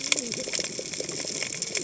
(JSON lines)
{"label": "biophony, cascading saw", "recorder": "HydroMoth"}